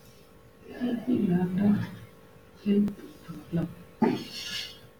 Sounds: Sigh